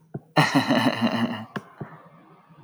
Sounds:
Laughter